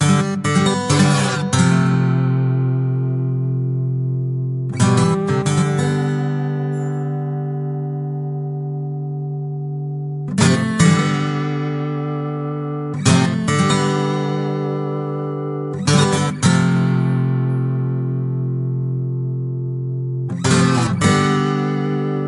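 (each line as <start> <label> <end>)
0.0 An acoustic guitar is being played with distortion. 22.3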